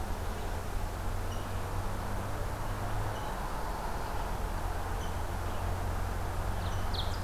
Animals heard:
Ovenbird (Seiurus aurocapilla), Rose-breasted Grosbeak (Pheucticus ludovicianus)

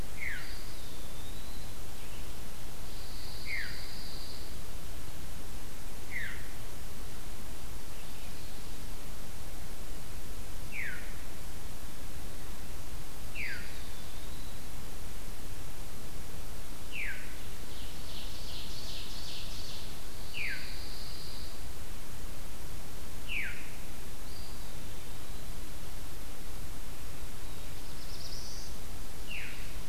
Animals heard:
Ovenbird (Seiurus aurocapilla), Eastern Wood-Pewee (Contopus virens), Veery (Catharus fuscescens), Black-throated Blue Warbler (Setophaga caerulescens), Pine Warbler (Setophaga pinus)

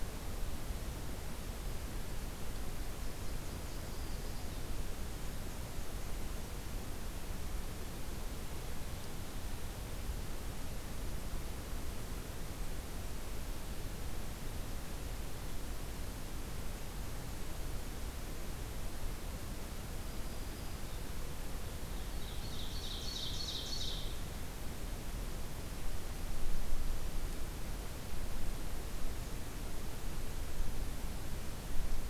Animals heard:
Ovenbird (Seiurus aurocapilla), Nashville Warbler (Leiothlypis ruficapilla), Black-throated Green Warbler (Setophaga virens)

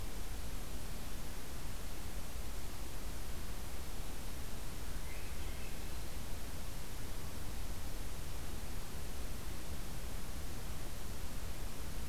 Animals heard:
Swainson's Thrush (Catharus ustulatus)

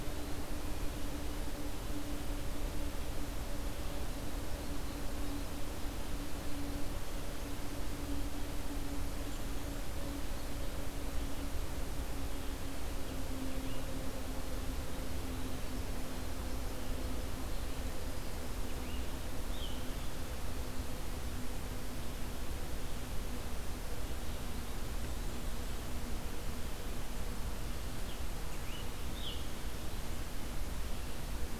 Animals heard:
Scarlet Tanager (Piranga olivacea)

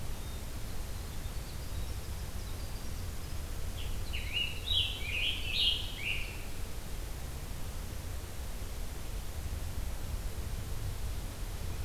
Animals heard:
Scarlet Tanager (Piranga olivacea), Winter Wren (Troglodytes hiemalis)

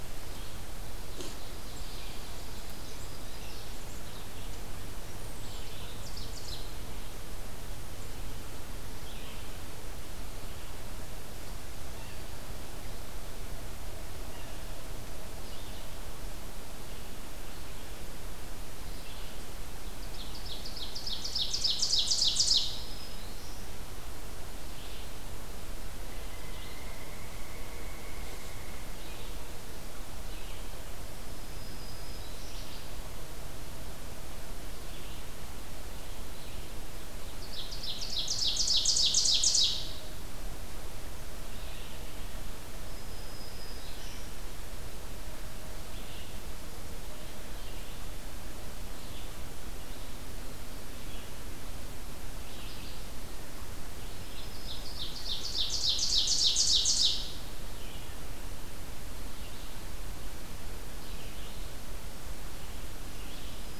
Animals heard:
Pileated Woodpecker (Dryocopus pileatus), Ovenbird (Seiurus aurocapilla), Black-throated Green Warbler (Setophaga virens), Red-eyed Vireo (Vireo olivaceus)

